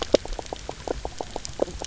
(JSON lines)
{"label": "biophony, knock croak", "recorder": "SoundTrap 300"}